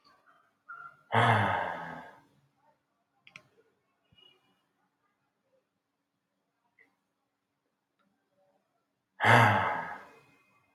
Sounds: Sigh